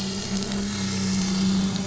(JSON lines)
{"label": "anthrophony, boat engine", "recorder": "SoundTrap 500"}